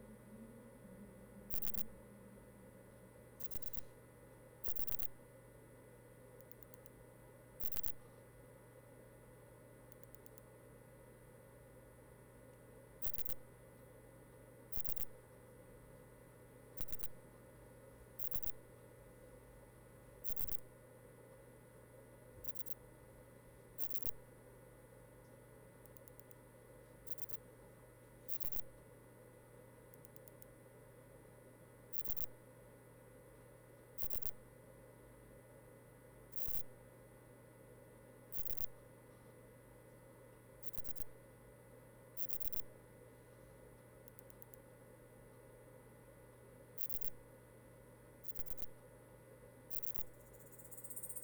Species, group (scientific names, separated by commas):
Poecilimon chopardi, Orthoptera